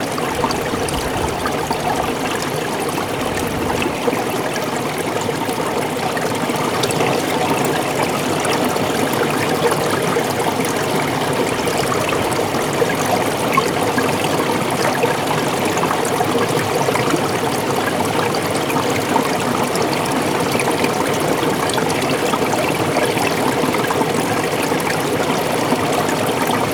Is this water?
yes